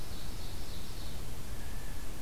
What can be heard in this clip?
Ovenbird, Blue Jay